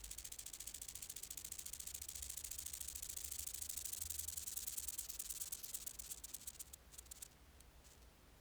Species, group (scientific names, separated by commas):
Chorthippus acroleucus, Orthoptera